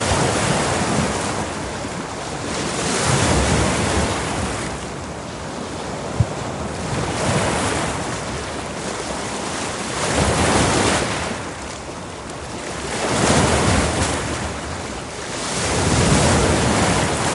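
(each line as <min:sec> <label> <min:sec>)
0:00.0 Waves crashing on the coast. 0:17.3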